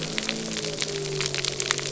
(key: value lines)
label: anthrophony, boat engine
recorder: SoundTrap 300